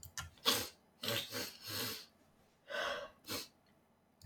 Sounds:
Sniff